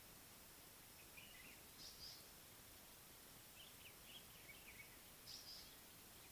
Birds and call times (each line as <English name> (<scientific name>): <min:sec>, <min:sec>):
African Paradise-Flycatcher (Terpsiphone viridis): 0:05.3